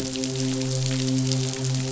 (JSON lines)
{"label": "biophony, midshipman", "recorder": "SoundTrap 500"}